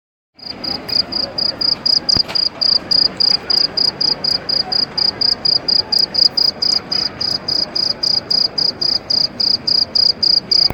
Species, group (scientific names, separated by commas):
Gryllus bimaculatus, Orthoptera